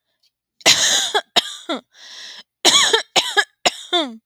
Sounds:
Cough